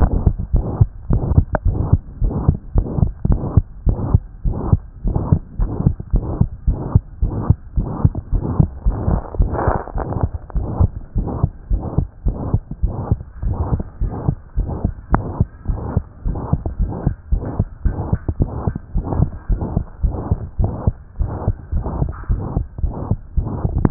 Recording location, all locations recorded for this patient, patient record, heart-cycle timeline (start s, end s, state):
tricuspid valve (TV)
aortic valve (AV)+pulmonary valve (PV)+tricuspid valve (TV)+mitral valve (MV)
#Age: Child
#Sex: Male
#Height: 129.0 cm
#Weight: 20.0 kg
#Pregnancy status: False
#Murmur: Present
#Murmur locations: aortic valve (AV)+mitral valve (MV)+pulmonary valve (PV)+tricuspid valve (TV)
#Most audible location: tricuspid valve (TV)
#Systolic murmur timing: Holosystolic
#Systolic murmur shape: Plateau
#Systolic murmur grading: III/VI or higher
#Systolic murmur pitch: High
#Systolic murmur quality: Harsh
#Diastolic murmur timing: nan
#Diastolic murmur shape: nan
#Diastolic murmur grading: nan
#Diastolic murmur pitch: nan
#Diastolic murmur quality: nan
#Outcome: Abnormal
#Campaign: 2014 screening campaign
0.00	0.10	S1
0.10	0.24	systole
0.24	0.34	S2
0.34	0.54	diastole
0.54	0.66	S1
0.66	0.80	systole
0.80	0.88	S2
0.88	1.10	diastole
1.10	1.22	S1
1.22	1.34	systole
1.34	1.46	S2
1.46	1.66	diastole
1.66	1.78	S1
1.78	1.90	systole
1.90	2.00	S2
2.00	2.22	diastole
2.22	2.34	S1
2.34	2.46	systole
2.46	2.56	S2
2.56	2.74	diastole
2.74	2.86	S1
2.86	3.00	systole
3.00	3.10	S2
3.10	3.28	diastole
3.28	3.40	S1
3.40	3.54	systole
3.54	3.64	S2
3.64	3.86	diastole
3.86	3.98	S1
3.98	4.10	systole
4.10	4.22	S2
4.22	4.46	diastole
4.46	4.56	S1
4.56	4.70	systole
4.70	4.80	S2
4.80	5.06	diastole
5.06	5.18	S1
5.18	5.30	systole
5.30	5.40	S2
5.40	5.60	diastole
5.60	5.70	S1
5.70	5.84	systole
5.84	5.94	S2
5.94	6.14	diastole
6.14	6.26	S1
6.26	6.38	systole
6.38	6.48	S2
6.48	6.68	diastole
6.68	6.78	S1
6.78	6.94	systole
6.94	7.02	S2
7.02	7.22	diastole
7.22	7.34	S1
7.34	7.48	systole
7.48	7.56	S2
7.56	7.76	diastole
7.76	7.88	S1
7.88	8.02	systole
8.02	8.12	S2
8.12	8.32	diastole
8.32	8.44	S1
8.44	8.58	systole
8.58	8.68	S2
8.68	8.86	diastole
8.86	8.96	S1
8.96	9.08	systole
9.08	9.20	S2
9.20	9.40	diastole
9.40	9.52	S1
9.52	9.66	systole
9.66	9.76	S2
9.76	9.96	diastole
9.96	10.06	S1
10.06	10.22	systole
10.22	10.30	S2
10.30	10.56	diastole
10.56	10.66	S1
10.66	10.78	systole
10.78	10.90	S2
10.90	11.16	diastole
11.16	11.28	S1
11.28	11.42	systole
11.42	11.50	S2
11.50	11.70	diastole
11.70	11.82	S1
11.82	11.96	systole
11.96	12.06	S2
12.06	12.26	diastole
12.26	12.36	S1
12.36	12.52	systole
12.52	12.62	S2
12.62	12.82	diastole
12.82	12.94	S1
12.94	13.10	systole
13.10	13.18	S2
13.18	13.44	diastole
13.44	13.58	S1
13.58	13.72	systole
13.72	13.80	S2
13.80	14.02	diastole
14.02	14.12	S1
14.12	14.26	systole
14.26	14.36	S2
14.36	14.58	diastole
14.58	14.70	S1
14.70	14.84	systole
14.84	14.92	S2
14.92	15.12	diastole
15.12	15.24	S1
15.24	15.38	systole
15.38	15.48	S2
15.48	15.68	diastole
15.68	15.80	S1
15.80	15.94	systole
15.94	16.04	S2
16.04	16.26	diastole
16.26	16.38	S1
16.38	16.52	systole
16.52	16.60	S2
16.60	16.80	diastole
16.80	16.92	S1
16.92	17.04	systole
17.04	17.14	S2
17.14	17.32	diastole
17.32	17.44	S1
17.44	17.58	systole
17.58	17.68	S2
17.68	17.86	diastole
17.86	17.96	S1
17.96	18.10	systole
18.10	18.20	S2
18.20	18.38	diastole
18.38	18.50	S1
18.50	18.66	systole
18.66	18.74	S2
18.74	18.96	diastole
18.96	19.04	S1
19.04	19.18	systole
19.18	19.28	S2
19.28	19.50	diastole
19.50	19.62	S1
19.62	19.74	systole
19.74	19.84	S2
19.84	20.04	diastole
20.04	20.16	S1
20.16	20.30	systole
20.30	20.38	S2
20.38	20.60	diastole
20.60	20.72	S1
20.72	20.86	systole
20.86	20.94	S2
20.94	21.20	diastole
21.20	21.32	S1
21.32	21.46	systole
21.46	21.56	S2
21.56	21.74	diastole
21.74	21.84	S1
21.84	22.00	systole
22.00	22.10	S2
22.10	22.30	diastole
22.30	22.42	S1
22.42	22.56	systole
22.56	22.66	S2
22.66	22.84	diastole
22.84	22.94	S1
22.94	23.08	systole
23.08	23.18	S2
23.18	23.38	diastole
23.38	23.48	S1
23.48	23.64	systole
23.64	23.84	S2
23.84	23.90	diastole